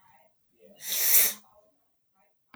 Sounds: Sniff